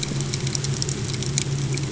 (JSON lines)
{"label": "ambient", "recorder": "HydroMoth"}